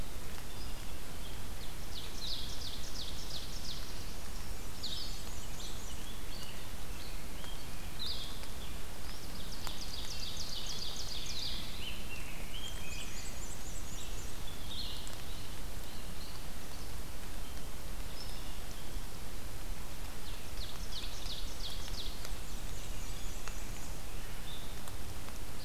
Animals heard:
Ovenbird (Seiurus aurocapilla), Blue-headed Vireo (Vireo solitarius), Black-and-white Warbler (Mniotilta varia), Rose-breasted Grosbeak (Pheucticus ludovicianus)

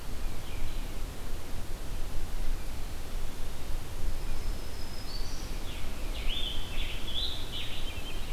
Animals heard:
Scarlet Tanager (Piranga olivacea), Black-throated Green Warbler (Setophaga virens)

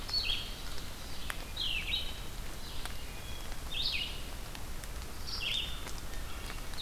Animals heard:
Red-eyed Vireo (Vireo olivaceus), Wood Thrush (Hylocichla mustelina)

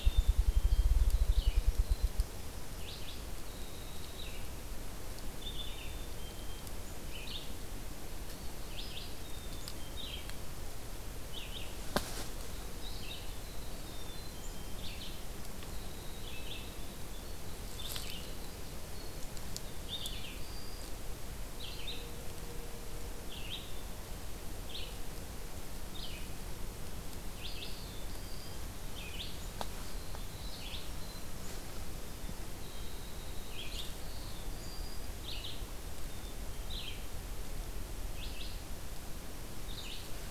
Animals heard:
Black-throated Blue Warbler (Setophaga caerulescens), Black-capped Chickadee (Poecile atricapillus), Winter Wren (Troglodytes hiemalis), Red-eyed Vireo (Vireo olivaceus)

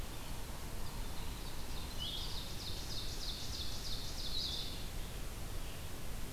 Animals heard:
Blue-headed Vireo (Vireo solitarius), Ovenbird (Seiurus aurocapilla), Yellow-bellied Sapsucker (Sphyrapicus varius)

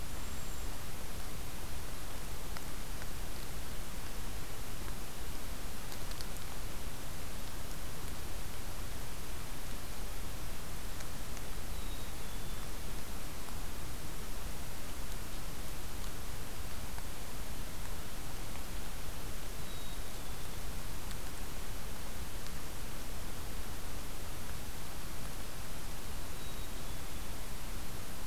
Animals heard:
Black-capped Chickadee (Poecile atricapillus), Cedar Waxwing (Bombycilla cedrorum)

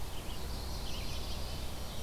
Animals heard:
Red-eyed Vireo (Vireo olivaceus), Mourning Warbler (Geothlypis philadelphia)

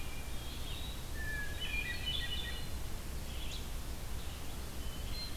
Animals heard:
Eastern Wood-Pewee (Contopus virens), Hermit Thrush (Catharus guttatus), Red-eyed Vireo (Vireo olivaceus)

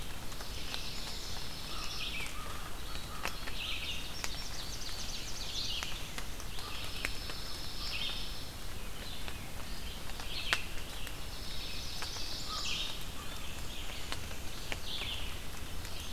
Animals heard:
American Crow (Corvus brachyrhynchos), Black-and-white Warbler (Mniotilta varia), Red-eyed Vireo (Vireo olivaceus), Chestnut-sided Warbler (Setophaga pensylvanica), Indigo Bunting (Passerina cyanea), Ovenbird (Seiurus aurocapilla), Dark-eyed Junco (Junco hyemalis)

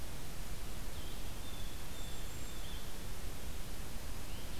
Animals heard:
Blue Jay (Cyanocitta cristata), Blue-headed Vireo (Vireo solitarius), Cedar Waxwing (Bombycilla cedrorum)

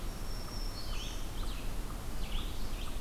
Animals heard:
Black-throated Green Warbler (Setophaga virens), Eastern Wood-Pewee (Contopus virens), Red-eyed Vireo (Vireo olivaceus)

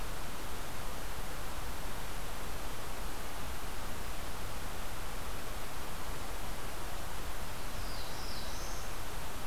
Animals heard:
Black-throated Blue Warbler (Setophaga caerulescens)

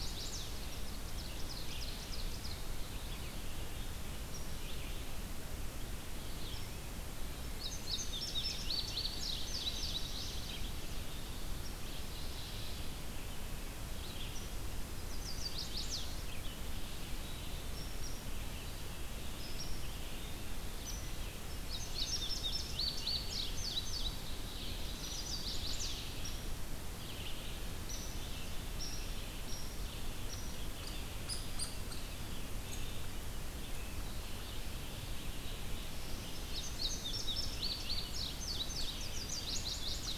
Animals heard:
Mourning Warbler (Geothlypis philadelphia), Chestnut-sided Warbler (Setophaga pensylvanica), Hairy Woodpecker (Dryobates villosus), Ovenbird (Seiurus aurocapilla), Red-eyed Vireo (Vireo olivaceus), Indigo Bunting (Passerina cyanea)

